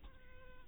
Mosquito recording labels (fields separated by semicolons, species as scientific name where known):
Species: mosquito; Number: one; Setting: cup